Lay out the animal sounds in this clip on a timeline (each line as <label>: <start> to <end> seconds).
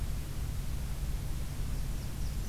Blackburnian Warbler (Setophaga fusca): 1.5 to 2.5 seconds